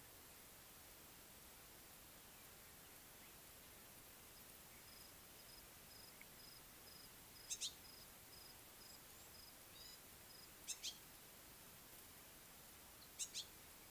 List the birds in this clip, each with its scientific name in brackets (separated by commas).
Yellow-spotted Bush Sparrow (Gymnoris pyrgita)